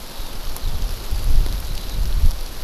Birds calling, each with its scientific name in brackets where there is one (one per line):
Eurasian Skylark (Alauda arvensis)